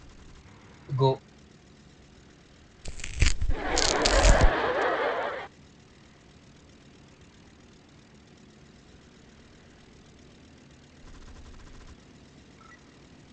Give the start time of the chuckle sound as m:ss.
0:03